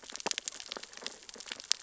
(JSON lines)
{"label": "biophony, sea urchins (Echinidae)", "recorder": "SoundTrap 600 or HydroMoth"}